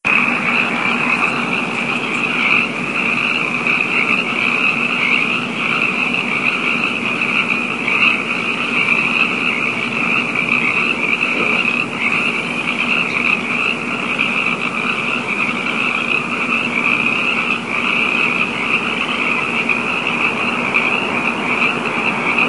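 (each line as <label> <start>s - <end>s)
A large group of frogs croaking. 0.0s - 22.5s
Heavy rain falling. 0.0s - 22.5s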